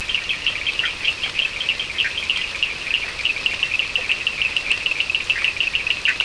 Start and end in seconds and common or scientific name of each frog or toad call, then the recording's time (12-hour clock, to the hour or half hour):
0.0	6.2	Cochran's lime tree frog
0.8	1.0	Bischoff's tree frog
5.2	6.2	Bischoff's tree frog
2am